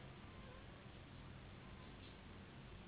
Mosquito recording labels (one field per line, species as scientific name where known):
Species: Anopheles gambiae s.s.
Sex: female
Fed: unfed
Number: one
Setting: insect culture